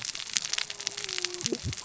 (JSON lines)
{"label": "biophony, cascading saw", "recorder": "SoundTrap 600 or HydroMoth"}